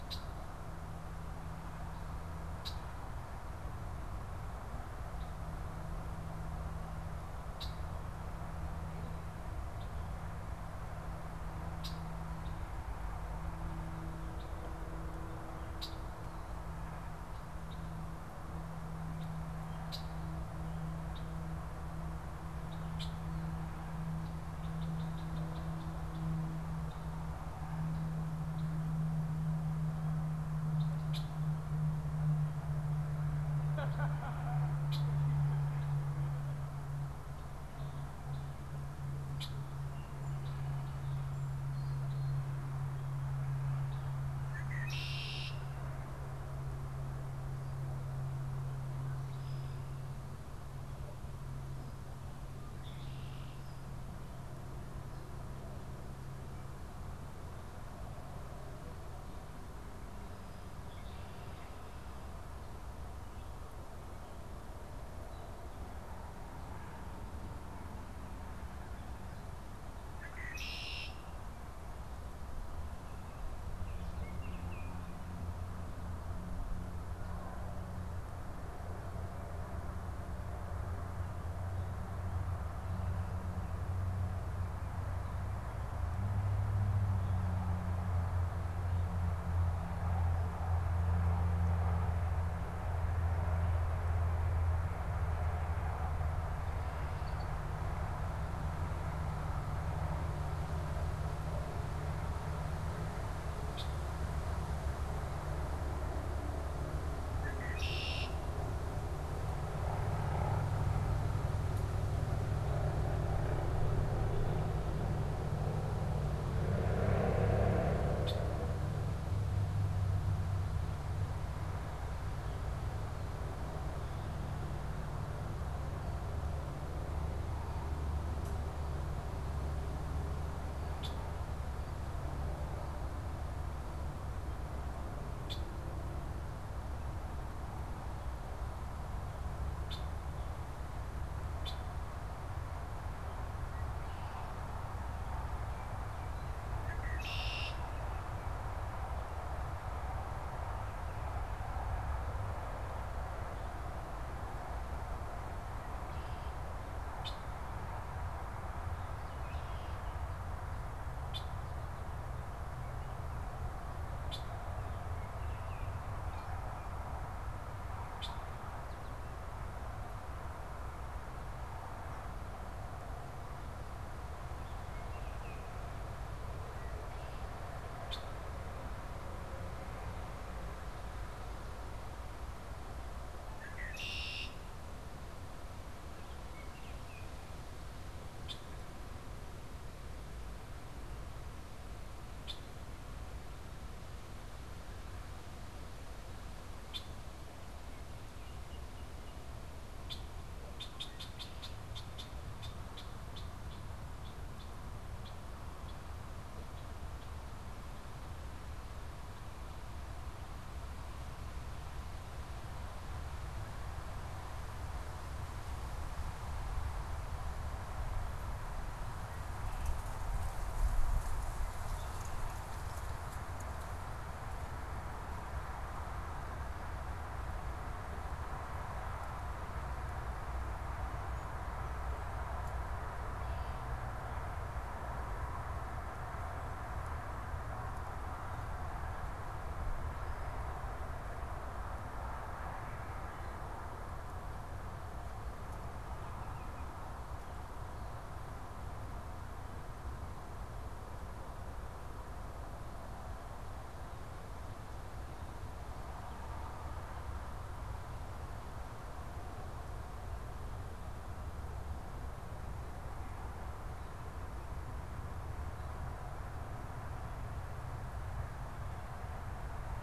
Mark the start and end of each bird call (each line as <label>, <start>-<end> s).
Red-winged Blackbird (Agelaius phoeniceus), 0.0-23.3 s
Red-winged Blackbird (Agelaius phoeniceus), 24.0-27.2 s
Red-winged Blackbird (Agelaius phoeniceus), 31.0-39.8 s
Red-winged Blackbird (Agelaius phoeniceus), 44.4-45.7 s
Red-winged Blackbird (Agelaius phoeniceus), 52.6-53.7 s
Red-winged Blackbird (Agelaius phoeniceus), 70.2-71.6 s
Baltimore Oriole (Icterus galbula), 73.8-75.2 s
Red-winged Blackbird (Agelaius phoeniceus), 103.7-104.0 s
Red-winged Blackbird (Agelaius phoeniceus), 107.3-108.7 s
Red-winged Blackbird (Agelaius phoeniceus), 118.2-118.6 s
Red-winged Blackbird (Agelaius phoeniceus), 130.9-142.0 s
Red-winged Blackbird (Agelaius phoeniceus), 146.8-147.9 s
Red-winged Blackbird (Agelaius phoeniceus), 157.1-157.4 s
Red-winged Blackbird (Agelaius phoeniceus), 161.3-168.4 s
Red-winged Blackbird (Agelaius phoeniceus), 177.9-188.8 s
Red-winged Blackbird (Agelaius phoeniceus), 192.3-207.6 s